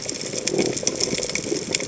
{"label": "biophony", "recorder": "HydroMoth"}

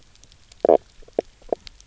{"label": "biophony, knock croak", "recorder": "SoundTrap 300"}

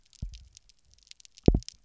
{"label": "biophony, double pulse", "recorder": "SoundTrap 300"}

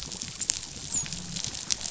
{"label": "biophony, dolphin", "recorder": "SoundTrap 500"}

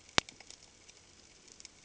{"label": "ambient", "recorder": "HydroMoth"}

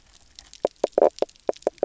{"label": "biophony, knock croak", "recorder": "SoundTrap 300"}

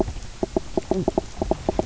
{"label": "biophony, knock croak", "recorder": "SoundTrap 300"}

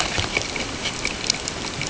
{"label": "ambient", "recorder": "HydroMoth"}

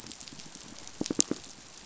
{"label": "biophony, pulse", "recorder": "SoundTrap 500"}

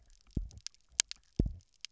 {"label": "biophony, double pulse", "recorder": "SoundTrap 300"}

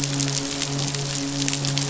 {"label": "biophony, midshipman", "recorder": "SoundTrap 500"}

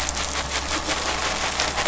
{"label": "anthrophony, boat engine", "recorder": "SoundTrap 500"}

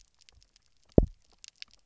{"label": "biophony, double pulse", "recorder": "SoundTrap 300"}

